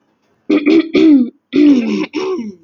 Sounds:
Throat clearing